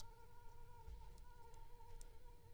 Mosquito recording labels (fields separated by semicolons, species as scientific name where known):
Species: Anopheles gambiae s.l.; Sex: female; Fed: unfed; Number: one; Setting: cup